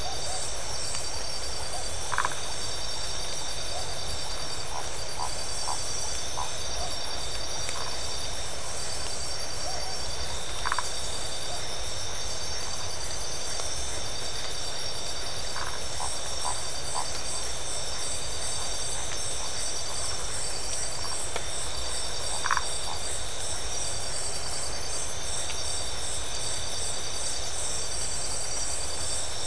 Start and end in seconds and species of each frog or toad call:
2.1	2.4	Phyllomedusa distincta
10.6	10.9	Phyllomedusa distincta
15.5	15.8	Phyllomedusa distincta
20.0	20.4	Phyllomedusa distincta
22.4	22.7	Phyllomedusa distincta

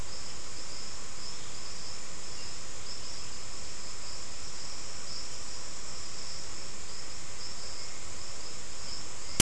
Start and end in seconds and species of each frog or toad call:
none

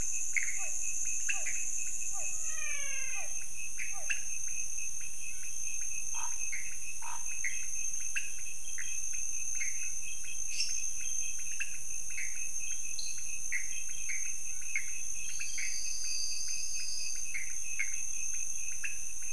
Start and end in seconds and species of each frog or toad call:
0.0	4.3	Physalaemus cuvieri
0.0	19.3	pointedbelly frog
0.0	19.3	Pithecopus azureus
2.2	3.4	menwig frog
5.9	7.3	Scinax fuscovarius
10.5	10.9	lesser tree frog
12.9	13.5	dwarf tree frog
15.3	17.7	Elachistocleis matogrosso

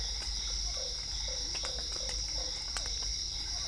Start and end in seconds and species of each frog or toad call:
0.0	3.6	Dendropsophus cruzi
0.0	3.6	Physalaemus cuvieri
0.7	2.5	Usina tree frog

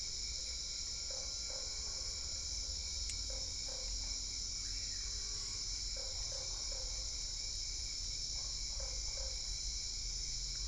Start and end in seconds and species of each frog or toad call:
1.0	10.6	Usina tree frog

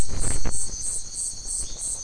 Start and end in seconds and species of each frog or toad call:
1.6	1.9	marbled tropical bullfrog

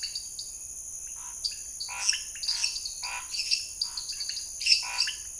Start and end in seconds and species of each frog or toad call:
0.0	5.3	lesser tree frog
0.0	5.3	dwarf tree frog
0.0	5.3	pointedbelly frog
1.1	5.3	Scinax fuscovarius

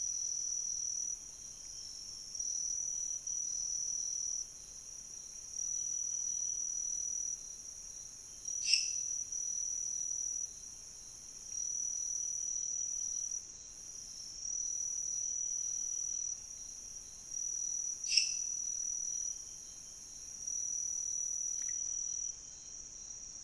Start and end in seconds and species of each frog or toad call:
8.6	9.1	lesser tree frog
18.0	18.7	lesser tree frog

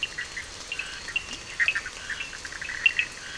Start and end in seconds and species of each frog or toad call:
0.0	3.3	Bischoff's tree frog
0.0	3.3	two-colored oval frog
0.0	3.3	Scinax perereca
0.0	3.3	Cochran's lime tree frog
0.9	1.8	Leptodactylus latrans

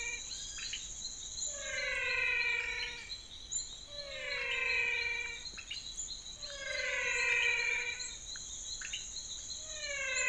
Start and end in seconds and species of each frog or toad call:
0.0	10.2	menwig frog
2.5	3.0	pointedbelly frog
5.3	6.1	pointedbelly frog
8.3	9.3	pointedbelly frog

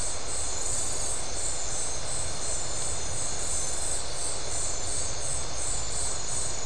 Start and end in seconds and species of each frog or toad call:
none

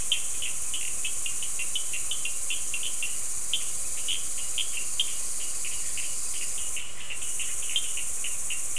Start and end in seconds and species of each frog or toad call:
0.0	8.6	Cochran's lime tree frog

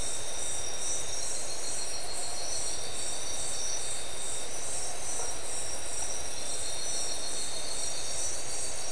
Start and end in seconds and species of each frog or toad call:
5.0	5.5	blacksmith tree frog

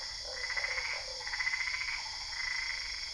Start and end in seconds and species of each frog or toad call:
0.0	1.2	Usina tree frog
0.3	3.0	Boana albopunctata

